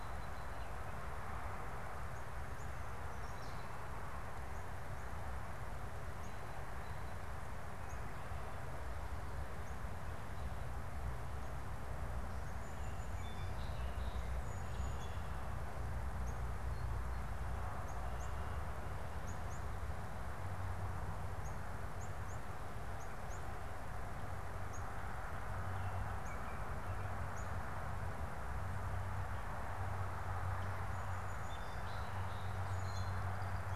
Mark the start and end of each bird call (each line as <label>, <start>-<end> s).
Song Sparrow (Melospiza melodia), 0.0-0.9 s
Northern Cardinal (Cardinalis cardinalis), 5.9-9.9 s
Song Sparrow (Melospiza melodia), 12.7-15.4 s
Northern Cardinal (Cardinalis cardinalis), 16.1-27.8 s
Song Sparrow (Melospiza melodia), 30.8-33.6 s